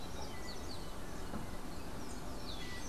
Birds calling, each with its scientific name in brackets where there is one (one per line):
Yellow-backed Oriole (Icterus chrysater)